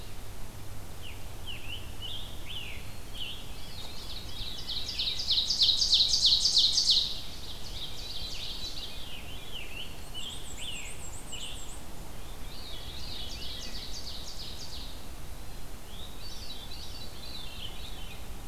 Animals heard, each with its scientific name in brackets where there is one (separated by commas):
Scarlet Tanager (Piranga olivacea), Black-throated Green Warbler (Setophaga virens), Black-and-white Warbler (Mniotilta varia), Ovenbird (Seiurus aurocapilla), Veery (Catharus fuscescens)